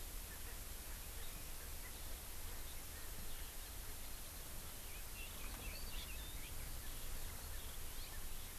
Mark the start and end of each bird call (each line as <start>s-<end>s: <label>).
4.9s-6.9s: Red-billed Leiothrix (Leiothrix lutea)